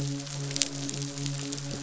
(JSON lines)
{"label": "biophony, midshipman", "recorder": "SoundTrap 500"}